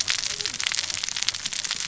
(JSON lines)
{"label": "biophony, cascading saw", "recorder": "SoundTrap 600 or HydroMoth"}